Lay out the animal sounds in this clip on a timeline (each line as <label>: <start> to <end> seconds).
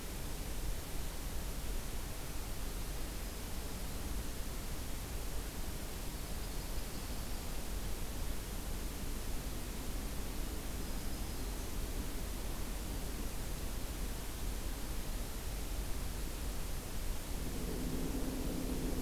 Black-throated Green Warbler (Setophaga virens): 2.7 to 4.1 seconds
Yellow-rumped Warbler (Setophaga coronata): 6.2 to 7.5 seconds
Black-throated Green Warbler (Setophaga virens): 10.8 to 11.8 seconds